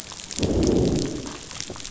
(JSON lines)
{"label": "biophony, growl", "recorder": "SoundTrap 500"}